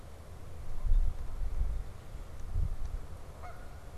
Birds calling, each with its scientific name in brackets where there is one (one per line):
Canada Goose (Branta canadensis)